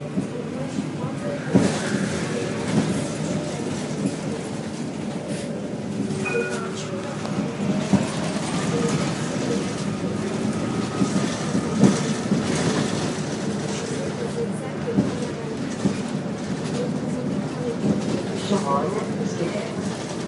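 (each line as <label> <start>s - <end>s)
People boarding and exiting a public transport vehicle while talking, combined with mechanical noises of the vehicle. 0.0s - 14.2s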